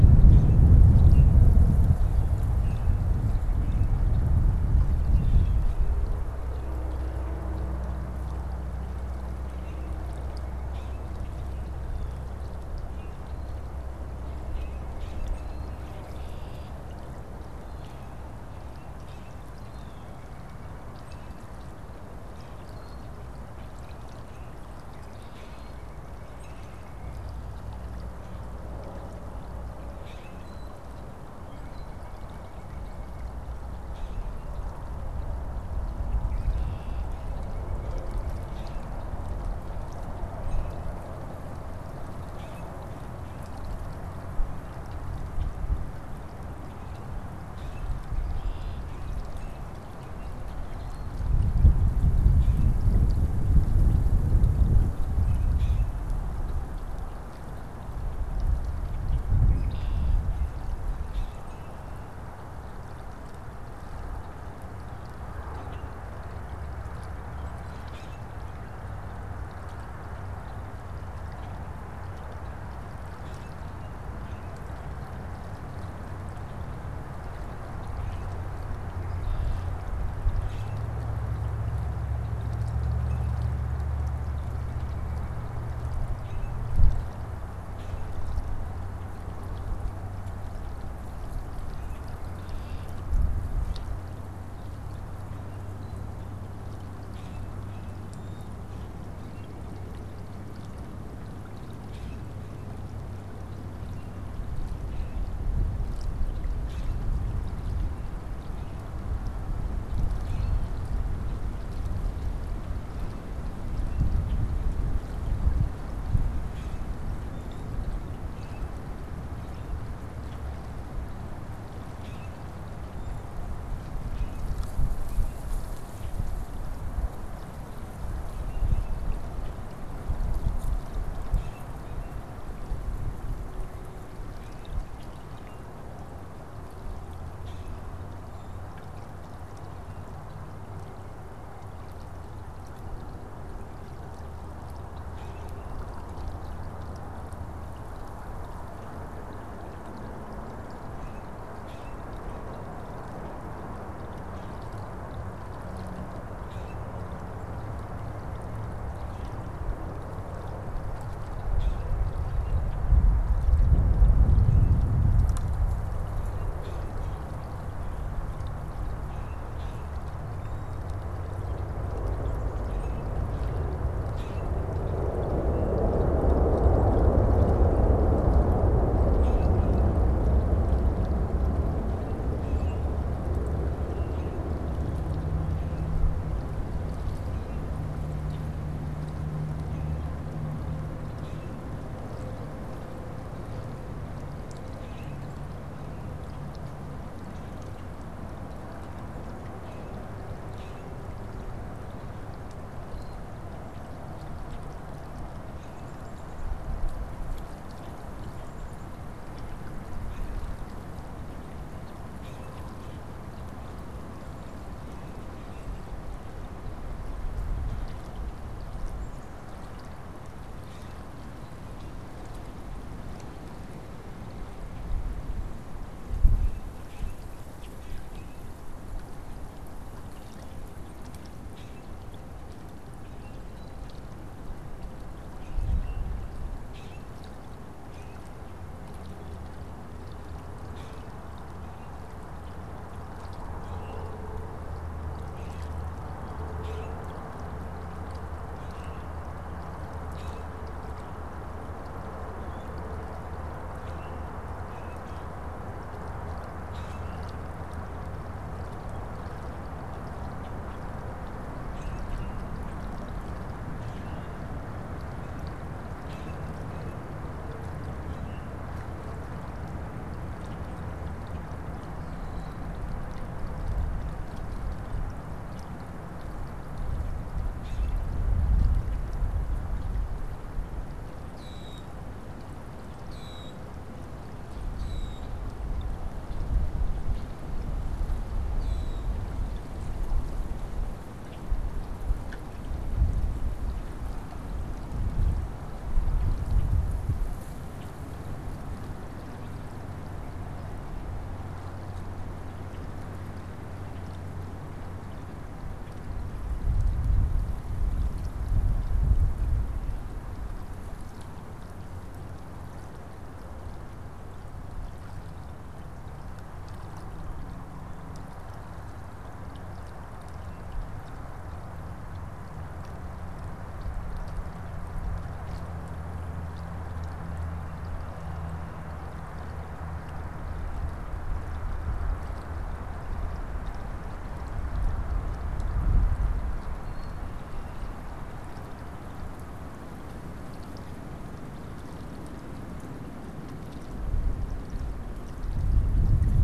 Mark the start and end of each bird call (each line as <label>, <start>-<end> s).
Common Grackle (Quiscalus quiscula), 0.8-3.0 s
Common Grackle (Quiscalus quiscula), 5.1-5.6 s
Common Grackle (Quiscalus quiscula), 9.3-10.0 s
White-breasted Nuthatch (Sitta carolinensis), 9.8-11.1 s
Common Grackle (Quiscalus quiscula), 10.6-11.3 s
Common Grackle (Quiscalus quiscula), 12.9-13.2 s
Killdeer (Charadrius vociferus), 13.2-13.7 s
Common Grackle (Quiscalus quiscula), 14.4-16.2 s
Killdeer (Charadrius vociferus), 15.3-15.8 s
Red-winged Blackbird (Agelaius phoeniceus), 16.0-16.8 s
Killdeer (Charadrius vociferus), 17.6-18.1 s
Common Grackle (Quiscalus quiscula), 17.7-19.5 s
Killdeer (Charadrius vociferus), 19.3-19.9 s
White-breasted Nuthatch (Sitta carolinensis), 19.9-21.0 s
Common Grackle (Quiscalus quiscula), 20.9-21.6 s
Common Grackle (Quiscalus quiscula), 22.2-22.8 s
Killdeer (Charadrius vociferus), 22.6-23.1 s
Common Grackle (Quiscalus quiscula), 24.3-24.7 s
White-breasted Nuthatch (Sitta carolinensis), 25.0-27.2 s
Common Grackle (Quiscalus quiscula), 25.3-25.6 s
Killdeer (Charadrius vociferus), 25.4-25.9 s
Common Grackle (Quiscalus quiscula), 26.3-26.8 s
Common Grackle (Quiscalus quiscula), 29.6-30.6 s
Killdeer (Charadrius vociferus), 30.3-30.8 s
White-breasted Nuthatch (Sitta carolinensis), 31.4-33.4 s
Killdeer (Charadrius vociferus), 31.6-32.0 s
Common Grackle (Quiscalus quiscula), 33.7-34.8 s
Red-winged Blackbird (Agelaius phoeniceus), 36.1-37.3 s
White-breasted Nuthatch (Sitta carolinensis), 37.3-38.8 s
Common Grackle (Quiscalus quiscula), 38.4-38.9 s
Common Grackle (Quiscalus quiscula), 40.4-40.9 s
Common Grackle (Quiscalus quiscula), 42.2-42.7 s
Common Grackle (Quiscalus quiscula), 47.4-48.0 s
Red-winged Blackbird (Agelaius phoeniceus), 48.3-49.0 s
Killdeer (Charadrius vociferus), 48.6-48.9 s
Common Grackle (Quiscalus quiscula), 48.8-49.8 s
Killdeer (Charadrius vociferus), 50.6-51.2 s
Common Grackle (Quiscalus quiscula), 52.4-52.8 s
Common Grackle (Quiscalus quiscula), 55.0-56.0 s
Red-winged Blackbird (Agelaius phoeniceus), 59.3-60.4 s
Common Grackle (Quiscalus quiscula), 61.0-61.8 s
Common Grackle (Quiscalus quiscula), 65.4-65.9 s
Common Grackle (Quiscalus quiscula), 67.6-68.4 s
Common Grackle (Quiscalus quiscula), 73.1-73.7 s
Common Grackle (Quiscalus quiscula), 77.8-78.4 s
Red-winged Blackbird (Agelaius phoeniceus), 79.1-79.8 s
Common Grackle (Quiscalus quiscula), 80.4-80.9 s
Common Grackle (Quiscalus quiscula), 82.9-83.4 s
Common Grackle (Quiscalus quiscula), 86.1-86.7 s
Common Grackle (Quiscalus quiscula), 87.5-88.2 s
Common Grackle (Quiscalus quiscula), 91.6-92.1 s
Red-winged Blackbird (Agelaius phoeniceus), 92.4-93.1 s
Common Grackle (Quiscalus quiscula), 96.8-98.9 s
Common Grackle (Quiscalus quiscula), 101.5-102.4 s
Common Grackle (Quiscalus quiscula), 104.6-105.4 s
Common Grackle (Quiscalus quiscula), 106.4-107.2 s
Common Grackle (Quiscalus quiscula), 110.1-110.8 s
Common Grackle (Quiscalus quiscula), 116.4-117.0 s
Common Grackle (Quiscalus quiscula), 118.2-118.8 s
Common Grackle (Quiscalus quiscula), 121.7-122.5 s
Common Grackle (Quiscalus quiscula), 124.0-124.6 s
Common Grackle (Quiscalus quiscula), 128.3-129.6 s
Common Grackle (Quiscalus quiscula), 131.1-132.4 s
Common Grackle (Quiscalus quiscula), 134.1-135.6 s
Common Grackle (Quiscalus quiscula), 137.3-138.7 s
Common Grackle (Quiscalus quiscula), 145.0-146.0 s
Common Grackle (Quiscalus quiscula), 150.9-152.2 s
Common Grackle (Quiscalus quiscula), 156.2-156.9 s
Common Grackle (Quiscalus quiscula), 161.3-162.0 s
Common Grackle (Quiscalus quiscula), 162.3-170.4 s
Common Grackle (Quiscalus quiscula), 172.3-175.0 s
Common Grackle (Quiscalus quiscula), 175.4-175.9 s
Common Grackle (Quiscalus quiscula), 178.9-184.6 s
Common Grackle (Quiscalus quiscula), 188.1-188.6 s
Common Grackle (Quiscalus quiscula), 190.9-191.6 s
Common Grackle (Quiscalus quiscula), 194.7-195.3 s
Common Grackle (Quiscalus quiscula), 199.4-201.1 s
Common Grackle (Quiscalus quiscula), 212.2-213.3 s
Common Grackle (Quiscalus quiscula), 214.7-215.8 s
Common Grackle (Quiscalus quiscula), 220.5-221.2 s
Common Grackle (Quiscalus quiscula), 226.0-228.6 s
Common Grackle (Quiscalus quiscula), 231.5-268.9 s
Common Grackle (Quiscalus quiscula), 277.3-278.1 s
Common Grackle (Quiscalus quiscula), 281.3-289.2 s